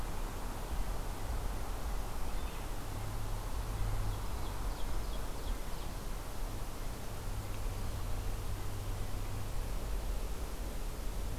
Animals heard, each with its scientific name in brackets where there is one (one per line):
Ovenbird (Seiurus aurocapilla)